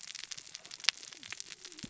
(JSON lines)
{"label": "biophony, cascading saw", "recorder": "SoundTrap 600 or HydroMoth"}